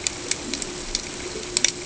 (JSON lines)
{"label": "ambient", "recorder": "HydroMoth"}